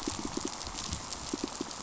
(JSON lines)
{"label": "biophony, pulse", "recorder": "SoundTrap 500"}